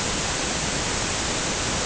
{"label": "ambient", "recorder": "HydroMoth"}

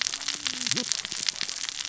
{"label": "biophony, cascading saw", "recorder": "SoundTrap 600 or HydroMoth"}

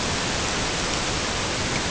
{"label": "ambient", "recorder": "HydroMoth"}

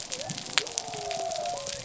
{"label": "biophony", "recorder": "SoundTrap 300"}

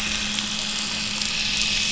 {"label": "anthrophony, boat engine", "recorder": "SoundTrap 500"}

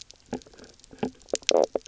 {"label": "biophony, knock croak", "recorder": "SoundTrap 300"}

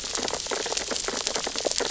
{"label": "biophony, sea urchins (Echinidae)", "recorder": "SoundTrap 600 or HydroMoth"}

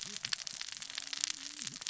{"label": "biophony, cascading saw", "recorder": "SoundTrap 600 or HydroMoth"}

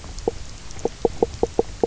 {"label": "biophony, knock croak", "recorder": "SoundTrap 300"}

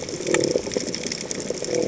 {"label": "biophony", "recorder": "HydroMoth"}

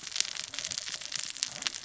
{"label": "biophony, cascading saw", "recorder": "SoundTrap 600 or HydroMoth"}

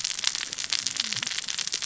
{"label": "biophony, cascading saw", "recorder": "SoundTrap 600 or HydroMoth"}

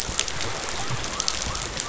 {"label": "biophony", "recorder": "SoundTrap 500"}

